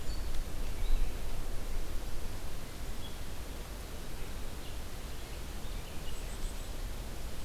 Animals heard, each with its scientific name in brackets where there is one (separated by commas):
Black-capped Chickadee (Poecile atricapillus), Red-eyed Vireo (Vireo olivaceus)